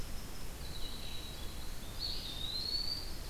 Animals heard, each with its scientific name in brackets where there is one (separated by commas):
Eastern Wood-Pewee (Contopus virens), Winter Wren (Troglodytes hiemalis), Red-eyed Vireo (Vireo olivaceus)